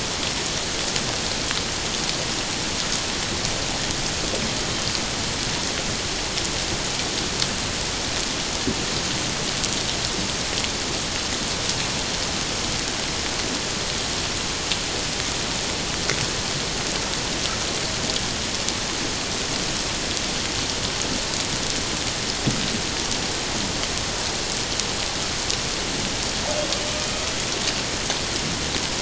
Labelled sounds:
27.0	27.3	humpback whale, 2.4 to 2.6 kHz

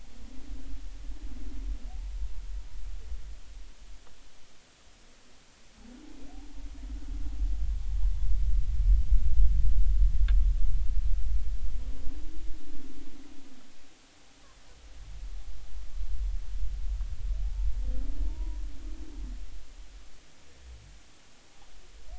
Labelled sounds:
17.4	17.7	humpback whale, 0.80 to 0.96 kHz
18.3	18.6	humpback whale, 0.86 to 1.0 kHz

